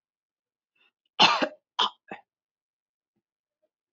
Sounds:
Throat clearing